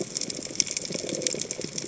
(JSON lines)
{"label": "biophony", "recorder": "HydroMoth"}